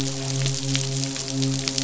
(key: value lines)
label: biophony, midshipman
recorder: SoundTrap 500